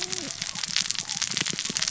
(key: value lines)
label: biophony, cascading saw
recorder: SoundTrap 600 or HydroMoth